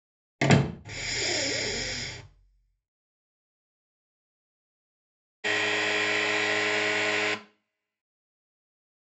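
At 0.4 seconds, there is a slam. Then, at 0.8 seconds, breathing is audible. Afterwards, at 5.4 seconds, you can hear a car.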